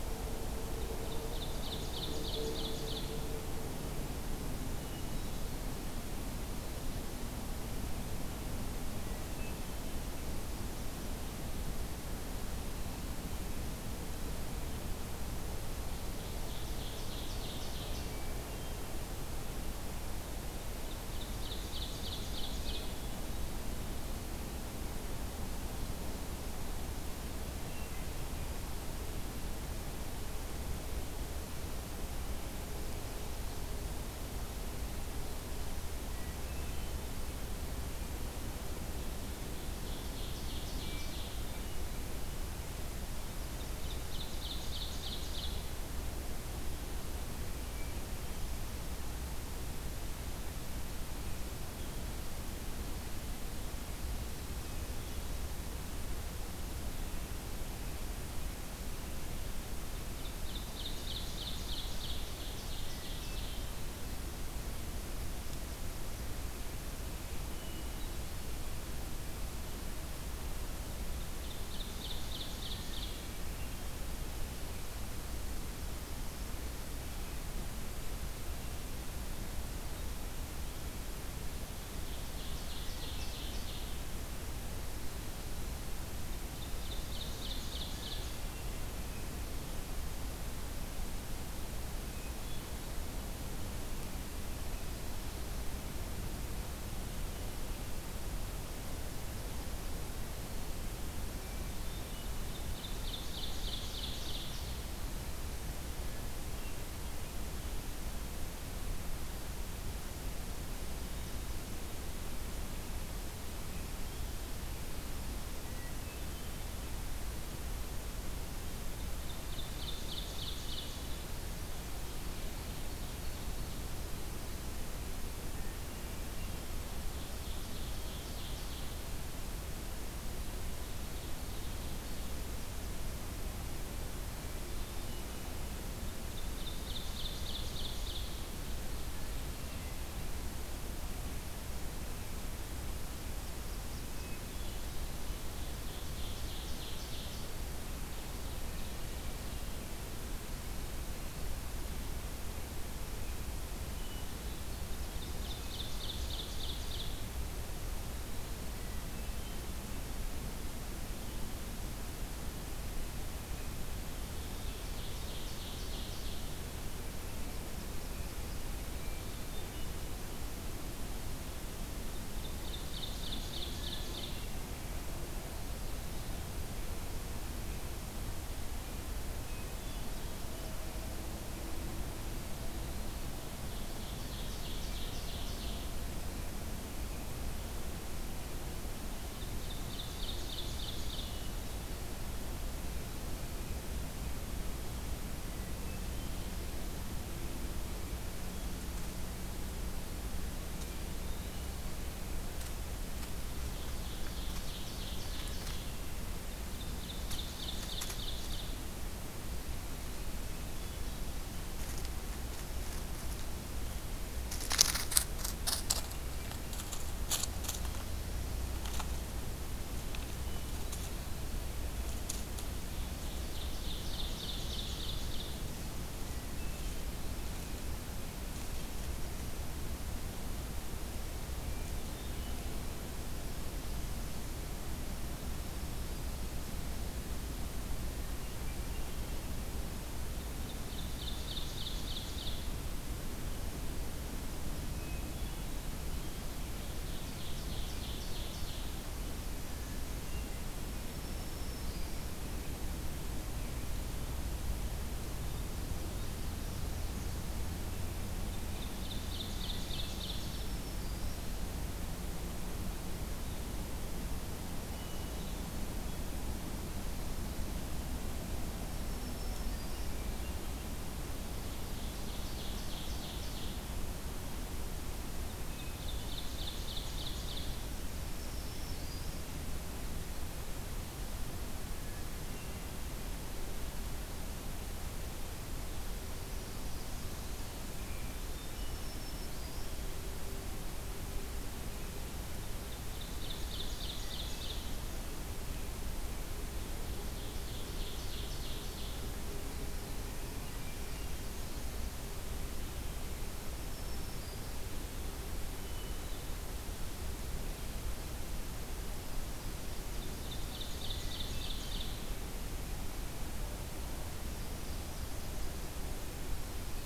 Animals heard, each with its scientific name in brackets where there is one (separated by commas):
Blackburnian Warbler (Setophaga fusca), Black-throated Green Warbler (Setophaga virens), Eastern Wood-Pewee (Contopus virens), Hermit Thrush (Catharus guttatus), Ovenbird (Seiurus aurocapilla)